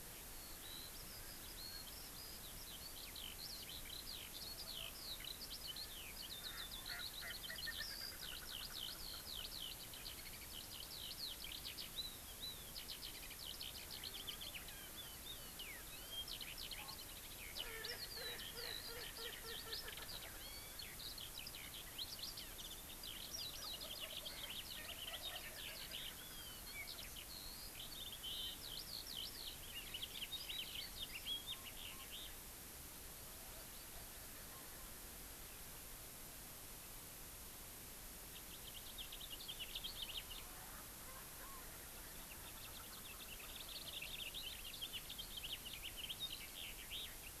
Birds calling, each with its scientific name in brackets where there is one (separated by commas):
Eurasian Skylark (Alauda arvensis), House Finch (Haemorhous mexicanus), Erckel's Francolin (Pternistis erckelii)